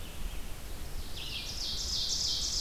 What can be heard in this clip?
Red-eyed Vireo, Ovenbird